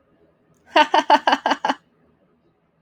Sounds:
Laughter